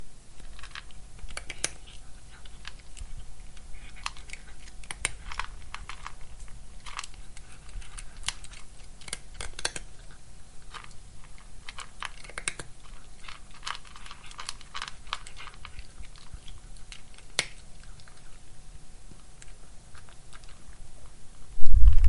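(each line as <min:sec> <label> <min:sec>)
0:00.5 A cat is eating crunchy cat food. 0:18.6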